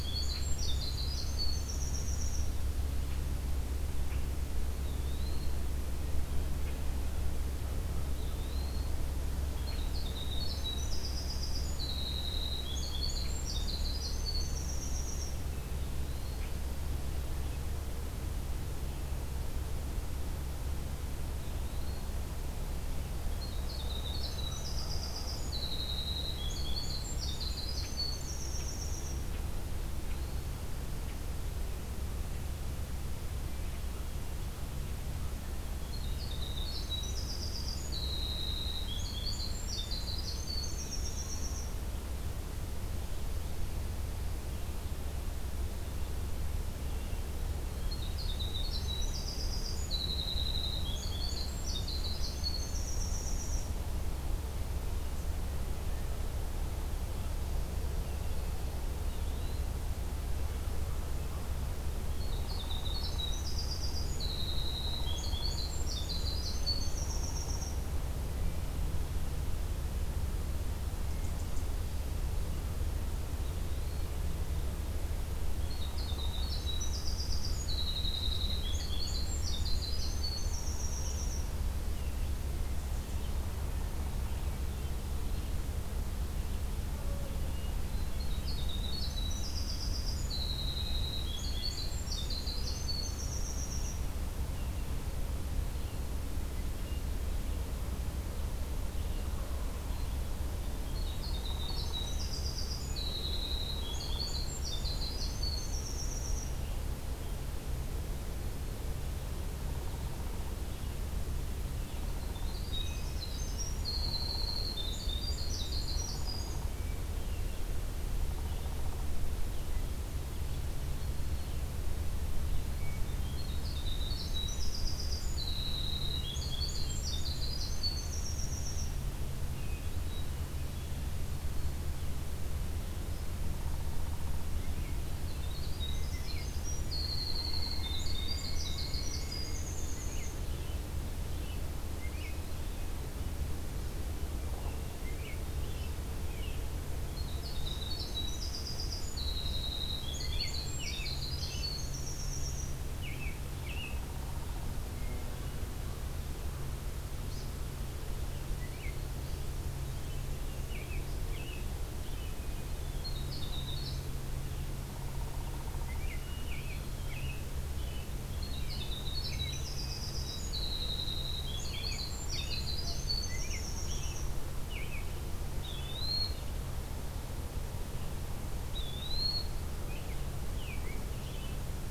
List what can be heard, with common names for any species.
Winter Wren, Eastern Wood-Pewee, Hermit Thrush, Downy Woodpecker, Pileated Woodpecker, American Robin